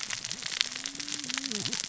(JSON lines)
{"label": "biophony, cascading saw", "recorder": "SoundTrap 600 or HydroMoth"}